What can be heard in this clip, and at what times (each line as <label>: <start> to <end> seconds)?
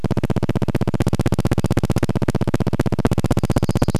recorder noise: 0 to 4 seconds
warbler song: 2 to 4 seconds